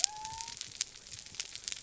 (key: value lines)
label: biophony
recorder: SoundTrap 300